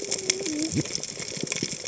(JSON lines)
{"label": "biophony, cascading saw", "recorder": "HydroMoth"}